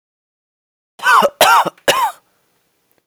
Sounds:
Cough